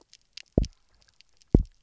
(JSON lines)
{"label": "biophony, double pulse", "recorder": "SoundTrap 300"}